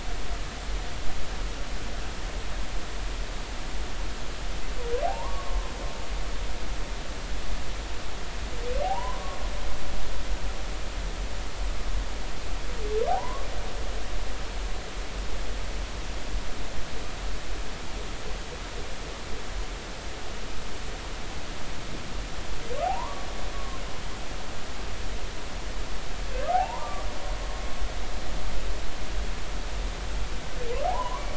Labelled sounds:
5.0	5.7	humpback whale, 0.80 to 1.2 kHz
8.8	9.4	humpback whale, 0.80 to 1.2 kHz
13.1	13.5	humpback whale, 0.80 to 1.2 kHz
22.8	23.3	humpback whale, 0.80 to 1.2 kHz
23.5	23.8	humpback whale, 1.0 to 1.2 kHz
26.5	27.0	humpback whale, 0.80 to 1.2 kHz
30.9	31.3	humpback whale, 0.80 to 1.2 kHz

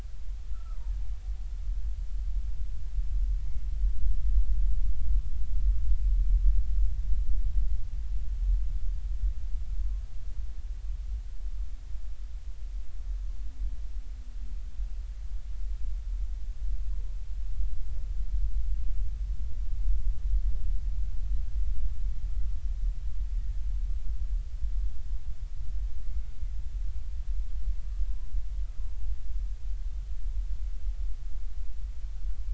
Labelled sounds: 0.5	0.8	killer whale, Bigg's (transient), 1.2 to 1.5 kHz
28.9	29.1	killer whale, Bigg's (transient), 0.80 to 0.99 kHz

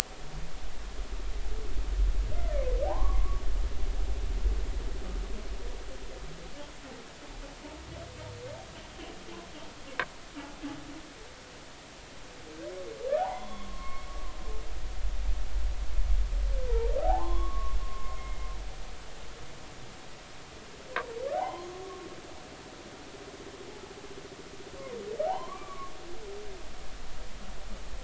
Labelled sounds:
2.9	3.4	humpback whale, 0.80 to 1.2 kHz
13.2	14.1	humpback whale, 0.80 to 3.5 kHz
17.0	18.5	humpback whale, 0.80 to 2.2 kHz
21.3	21.7	humpback whale, 0.80 to 3.2 kHz
25.2	25.9	humpback whale, 0.80 to 2.4 kHz

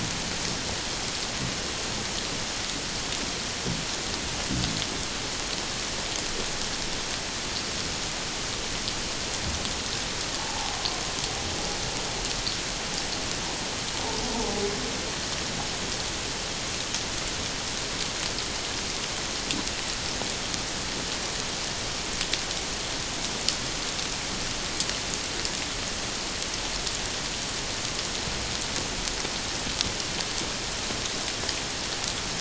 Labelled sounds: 10.4	10.8	humpback whale, 0.78 to 0.97 kHz

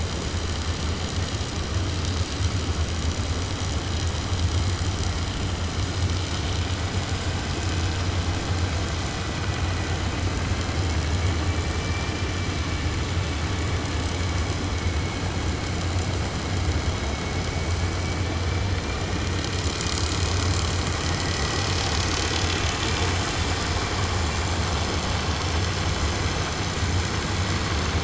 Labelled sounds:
11.5	12.4	killer whale, 1.7 to 3.0 kHz

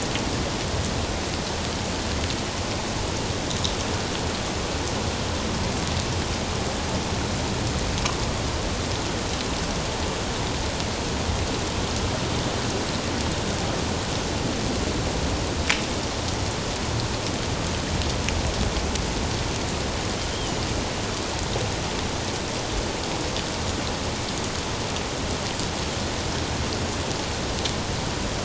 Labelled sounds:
20.3	20.6	Pacific white-sided dolphin, 2.9 to 3.3 kHz

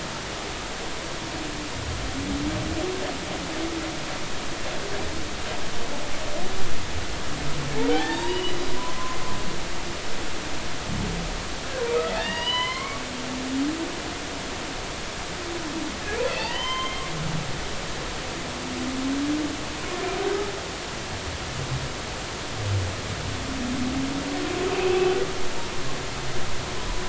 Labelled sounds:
7.9	9.2	humpback whale, 0.80 to 3.9 kHz
12.2	13.0	humpback whale, 0.90 to 5.0 kHz
16.3	17.0	humpback whale, 0.80 to 6.3 kHz
24.8	25.1	humpback whale, 2.5 to 2.7 kHz

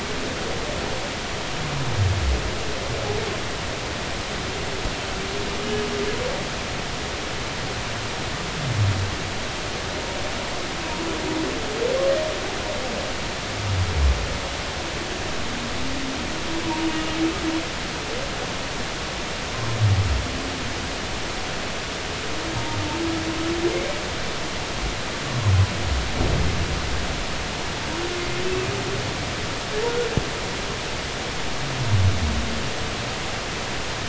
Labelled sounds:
16.6	17.2	humpback whale, 0.86 to 2.9 kHz

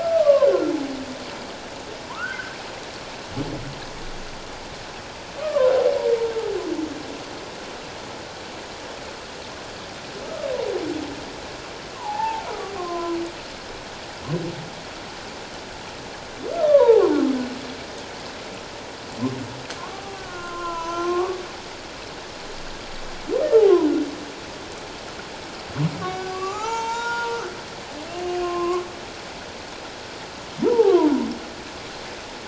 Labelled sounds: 0.0	0.7	humpback whale, 0.97 to 1.6 kHz
2.0	2.6	humpback whale, 0.91 to 1.7 kHz
5.4	5.7	humpback whale, 0.97 to 1.3 kHz
12.0	13.2	humpback whale, 0.78 to 1.5 kHz
16.7	17.0	humpback whale, 0.78 to 1.2 kHz
19.8	21.4	humpback whale, 0.78 to 6.5 kHz
26.0	27.4	humpback whale, 0.78 to 6.6 kHz
28.1	28.8	humpback whale, 0.97 to 2.9 kHz
30.6	31.1	humpback whale, 0.78 to 1.3 kHz

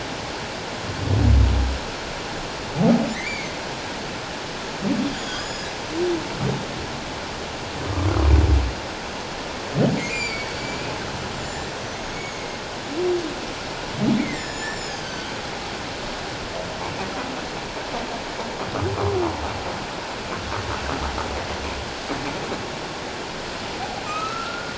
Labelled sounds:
3.1	3.6	humpback whale, 1.7 to 2.4 kHz
5.2	5.7	humpback whale, 1.4 to 7.0 kHz
10.0	10.5	humpback whale, 1.9 to 4.9 kHz
12.0	12.6	humpback whale, 2.1 to 6.9 kHz
14.2	15.3	humpback whale, 1.4 to 7.6 kHz
24.0	24.7	humpback whale, 1.2 to 2.7 kHz

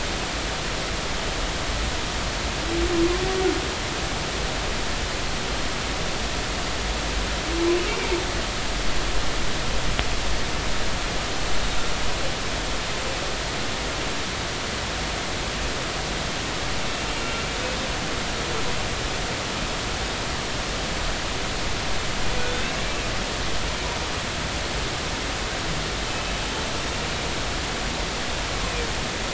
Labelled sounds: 8.9	9.2	humpback whale, 2.1 to 2.4 kHz

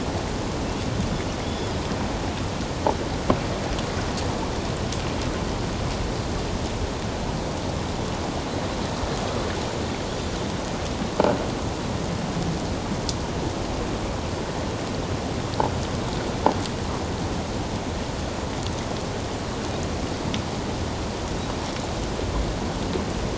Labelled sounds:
1.4	1.7	Pacific white-sided dolphin, 3.3 to 3.5 kHz

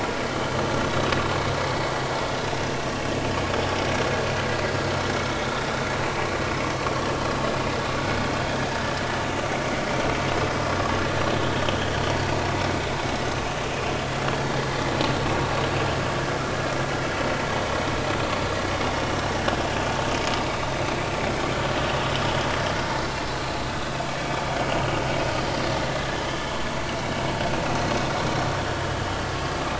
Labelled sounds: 24.1	24.4	vessel noise, 2.2 to 2.3 kHz
26.0	26.2	vessel noise, 1.6 to 1.8 kHz

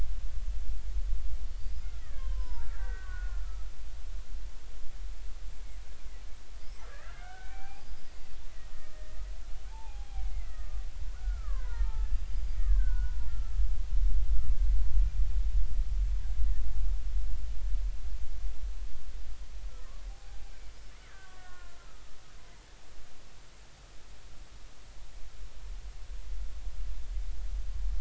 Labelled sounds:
2.0	3.7	killer whale, Bigg's (transient), 0.86 to 5.3 kHz
6.9	9.0	killer whale, Bigg's (transient), 0.80 to 5.0 kHz
9.7	13.5	killer whale, Bigg's (transient), 0.80 to 5.0 kHz
19.7	20.4	killer whale, Bigg's (transient), 0.80 to 1.4 kHz
21.0	22.2	killer whale, Bigg's (transient), 1.0 to 1.9 kHz

